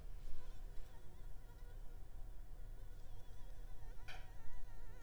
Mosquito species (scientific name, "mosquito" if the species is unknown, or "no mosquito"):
Anopheles arabiensis